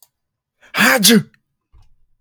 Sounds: Sneeze